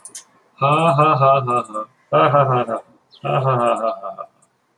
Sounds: Laughter